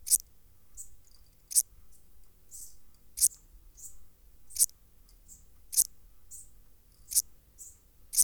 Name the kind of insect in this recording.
orthopteran